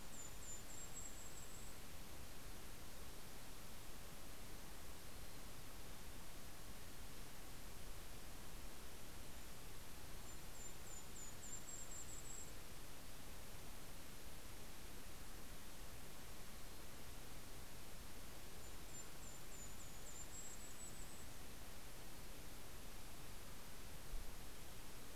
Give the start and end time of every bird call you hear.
[0.00, 1.22] Mountain Chickadee (Poecile gambeli)
[0.00, 2.32] Golden-crowned Kinglet (Regulus satrapa)
[4.62, 6.42] Mountain Chickadee (Poecile gambeli)
[9.92, 13.32] Golden-crowned Kinglet (Regulus satrapa)
[18.32, 21.82] Golden-crowned Kinglet (Regulus satrapa)

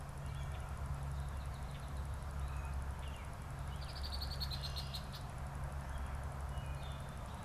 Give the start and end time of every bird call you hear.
[3.70, 5.30] Red-winged Blackbird (Agelaius phoeniceus)
[6.30, 7.30] Wood Thrush (Hylocichla mustelina)

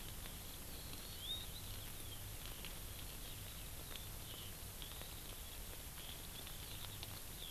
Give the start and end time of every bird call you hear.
[0.91, 1.51] Hawaii Amakihi (Chlorodrepanis virens)

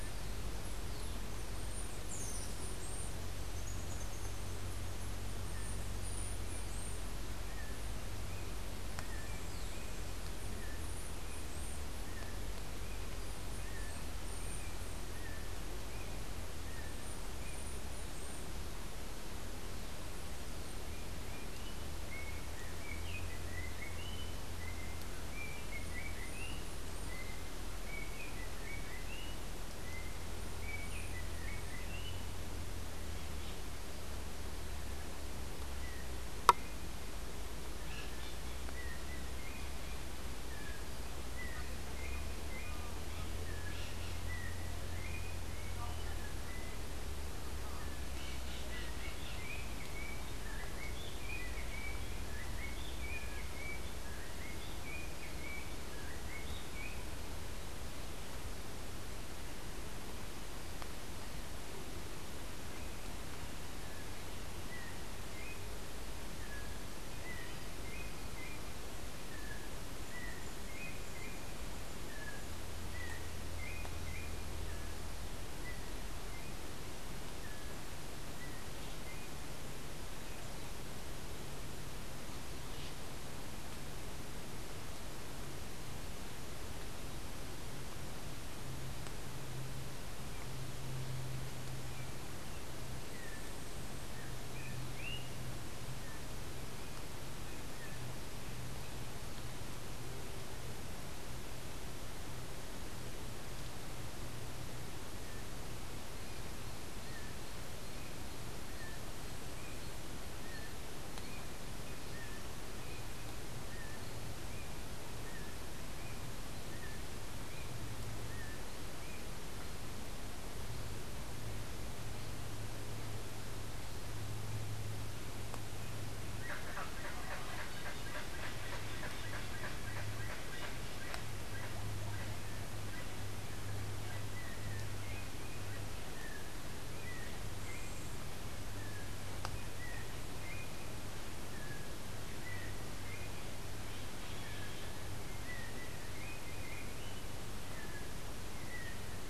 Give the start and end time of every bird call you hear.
[0.00, 7.29] Chestnut-capped Brushfinch (Arremon brunneinucha)
[20.79, 32.29] Yellow-backed Oriole (Icterus chrysater)
[37.79, 57.29] Yellow-backed Oriole (Icterus chrysater)
[63.79, 79.59] Yellow-backed Oriole (Icterus chrysater)
[126.39, 134.99] Colombian Chachalaca (Ortalis columbiana)
[134.29, 149.29] Yellow-backed Oriole (Icterus chrysater)

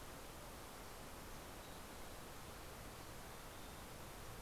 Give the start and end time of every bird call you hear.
[2.21, 4.11] Mountain Chickadee (Poecile gambeli)
[3.81, 4.42] Fox Sparrow (Passerella iliaca)

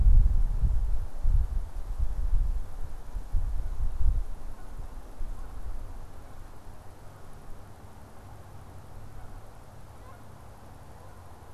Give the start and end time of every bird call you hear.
[7.87, 11.47] Canada Goose (Branta canadensis)

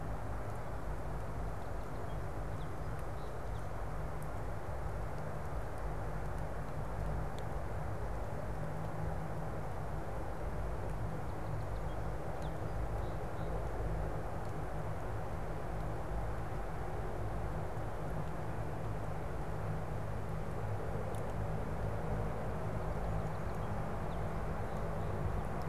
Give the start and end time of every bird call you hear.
[1.18, 4.18] Song Sparrow (Melospiza melodia)
[10.88, 13.28] Song Sparrow (Melospiza melodia)
[22.38, 25.68] Song Sparrow (Melospiza melodia)

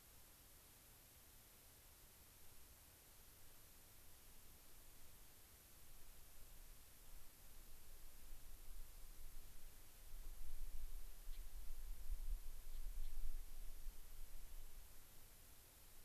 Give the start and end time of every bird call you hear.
[11.30, 11.50] Gray-crowned Rosy-Finch (Leucosticte tephrocotis)
[12.60, 13.20] Gray-crowned Rosy-Finch (Leucosticte tephrocotis)

